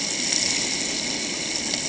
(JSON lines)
{"label": "ambient", "recorder": "HydroMoth"}